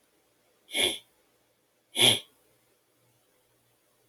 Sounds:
Sniff